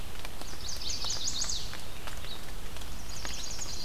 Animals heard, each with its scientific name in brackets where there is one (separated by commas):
Chestnut-sided Warbler (Setophaga pensylvanica), Red-eyed Vireo (Vireo olivaceus)